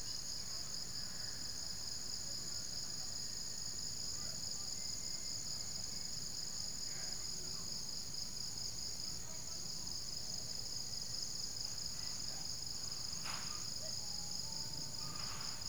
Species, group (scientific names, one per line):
Loxoblemmus arietulus
Orthoptera